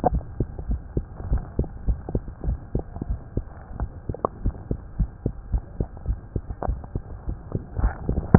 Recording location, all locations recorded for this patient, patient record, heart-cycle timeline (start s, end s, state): tricuspid valve (TV)
aortic valve (AV)+pulmonary valve (PV)+tricuspid valve (TV)+mitral valve (MV)
#Age: Child
#Sex: Female
#Height: 103.0 cm
#Weight: 14.0 kg
#Pregnancy status: False
#Murmur: Present
#Murmur locations: mitral valve (MV)+pulmonary valve (PV)+tricuspid valve (TV)
#Most audible location: pulmonary valve (PV)
#Systolic murmur timing: Holosystolic
#Systolic murmur shape: Plateau
#Systolic murmur grading: I/VI
#Systolic murmur pitch: Low
#Systolic murmur quality: Blowing
#Diastolic murmur timing: nan
#Diastolic murmur shape: nan
#Diastolic murmur grading: nan
#Diastolic murmur pitch: nan
#Diastolic murmur quality: nan
#Outcome: Abnormal
#Campaign: 2015 screening campaign
0.00	0.66	unannotated
0.66	0.82	S1
0.82	0.94	systole
0.94	1.06	S2
1.06	1.26	diastole
1.26	1.42	S1
1.42	1.56	systole
1.56	1.70	S2
1.70	1.86	diastole
1.86	2.00	S1
2.00	2.14	systole
2.14	2.24	S2
2.24	2.46	diastole
2.46	2.60	S1
2.60	2.76	systole
2.76	2.84	S2
2.84	3.08	diastole
3.08	3.20	S1
3.20	3.36	systole
3.36	3.48	S2
3.48	3.74	diastole
3.74	3.90	S1
3.90	4.08	systole
4.08	4.20	S2
4.20	4.42	diastole
4.42	4.54	S1
4.54	4.70	systole
4.70	4.80	S2
4.80	4.98	diastole
4.98	5.10	S1
5.10	5.24	systole
5.24	5.34	S2
5.34	5.50	diastole
5.50	5.62	S1
5.62	5.76	systole
5.76	5.88	S2
5.88	6.08	diastole
6.08	6.20	S1
6.20	6.32	systole
6.32	6.44	S2
6.44	6.64	diastole
6.64	6.80	S1
6.80	6.94	systole
6.94	7.06	S2
7.06	7.26	diastole
7.26	7.38	S1
7.38	7.52	systole
7.52	7.60	S2
7.60	7.78	diastole
7.78	7.94	S1
7.94	8.38	unannotated